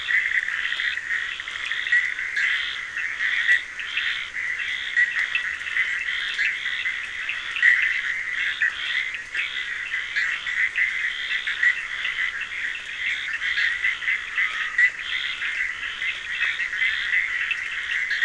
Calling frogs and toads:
Bischoff's tree frog (Boana bischoffi), Scinax perereca, Cochran's lime tree frog (Sphaenorhynchus surdus), Dendropsophus nahdereri
Atlantic Forest, ~4am

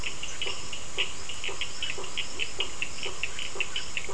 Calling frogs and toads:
Burmeister's tree frog (Boana prasina), Cochran's lime tree frog (Sphaenorhynchus surdus)
Atlantic Forest, ~7pm

